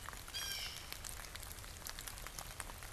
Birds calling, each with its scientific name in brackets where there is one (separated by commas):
Blue Jay (Cyanocitta cristata)